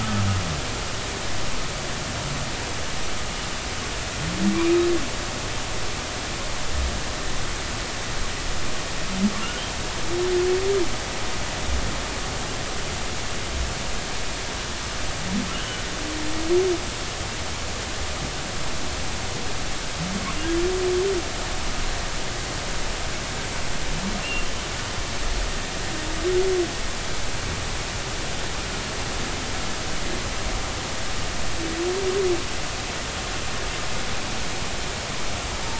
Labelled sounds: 4.5	4.8	humpback whale, 2.2 to 2.6 kHz
15.5	15.9	humpback whale, 1.4 to 3.2 kHz
24.2	24.5	humpback whale, 2.6 to 2.8 kHz

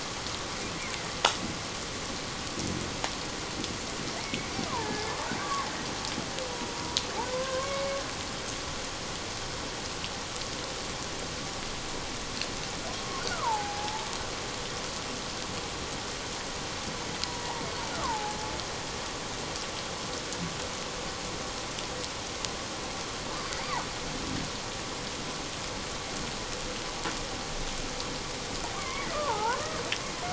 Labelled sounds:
4.2	5.7	killer whale, Bigg's (transient), 0.81 to 2.3 kHz
6.7	8.0	killer whale, Bigg's (transient), 0.91 to 2.3 kHz
12.9	14.1	killer whale, Bigg's (transient), 0.78 to 1.6 kHz
17.2	17.6	killer whale, Bigg's (transient), 0.78 to 1.0 kHz
17.9	18.4	killer whale, Bigg's (transient), 0.78 to 1.5 kHz
28.7	29.6	killer whale, Bigg's (transient), 0.78 to 2.3 kHz

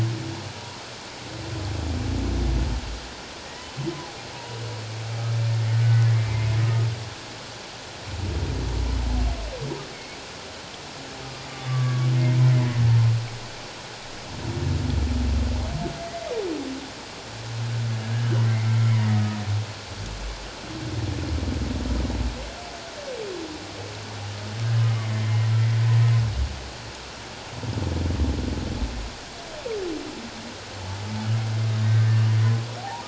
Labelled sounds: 5.8	6.5	humpback whale, 1.5 to 2.2 kHz
9.9	10.2	humpback whale, 2.1 to 2.3 kHz
11.7	12.1	humpback whale, 1.1 to 1.2 kHz
18.4	18.8	humpback whale, 1.9 to 2.3 kHz
25.1	25.5	humpback whale, 2.0 to 2.2 kHz
32.8	33.0	humpback whale, 0.78 to 1.0 kHz

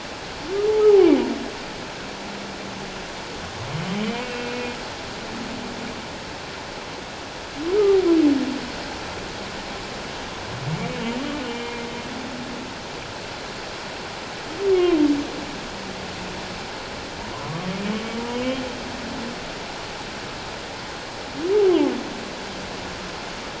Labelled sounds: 4.2	4.7	humpback whale, 2.4 to 2.8 kHz
11.4	11.8	humpback whale, 2.1 to 3.1 kHz
14.7	15.0	humpback whale, 2.0 to 2.2 kHz
17.3	17.7	humpback whale, 0.94 to 1.2 kHz

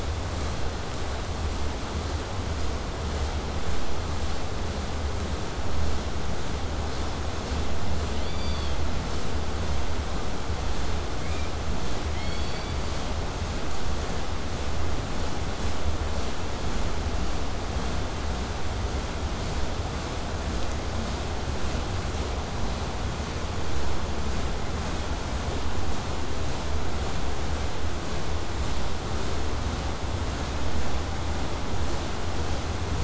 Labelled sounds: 8.1	8.8	killer whale, southern resident, K pod, call S16, 1.7 to 5.0 kHz
11.2	11.6	killer whale, southern resident, 0.91 to 4.1 kHz

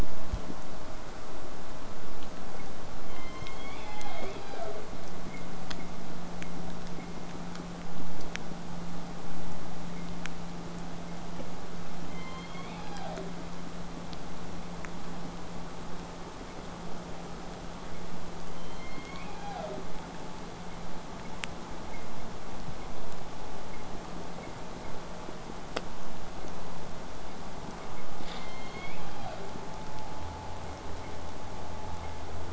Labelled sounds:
3.0	4.9	killer whale, southern resident, J pod, call S01, 0.04 to 7.1 kHz
12.1	13.3	killer whale, southern resident, J pod, call S01, 0.17 to 6.6 kHz
18.5	19.9	killer whale, southern resident, J pod, call S01, 0.12 to 6.9 kHz
28.3	29.5	killer whale, southern resident, J pod, call S01, 0.17 to 5.0 kHz

